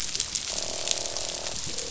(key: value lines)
label: biophony, croak
recorder: SoundTrap 500